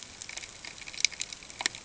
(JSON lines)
{"label": "ambient", "recorder": "HydroMoth"}